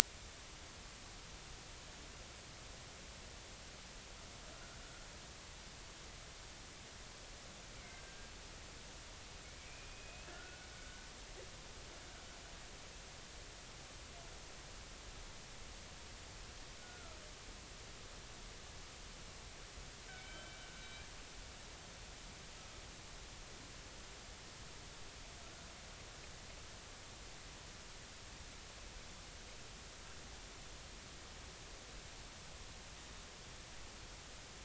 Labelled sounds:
7.8	8.3	killer whale, northern resident, G clan, 1.5 to 1.7 kHz
9.6	11.0	killer whale, northern resident, G clan, 1.3 to 2.7 kHz
16.8	17.2	killer whale, northern resident, G clan, 1.2 to 1.5 kHz
20.1	20.6	killer whale, northern resident, G clan, 1.4 to 3.3 kHz

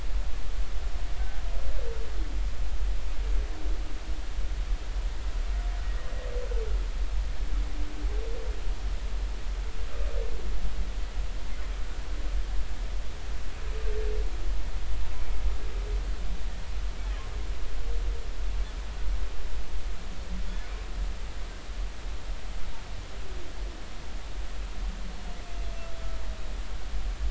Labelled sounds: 1.2	1.4	humpback whale, 1.5 to 1.6 kHz

